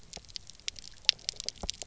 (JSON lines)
{"label": "biophony, pulse", "recorder": "SoundTrap 300"}